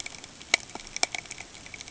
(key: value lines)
label: ambient
recorder: HydroMoth